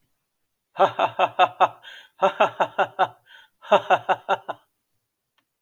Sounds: Laughter